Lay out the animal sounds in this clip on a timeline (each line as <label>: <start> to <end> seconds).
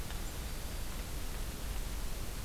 Black-throated Green Warbler (Setophaga virens): 0.0 to 1.0 seconds